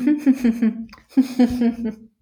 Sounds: Laughter